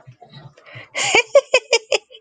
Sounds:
Laughter